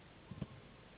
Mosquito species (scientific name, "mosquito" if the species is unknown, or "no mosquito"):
Anopheles gambiae s.s.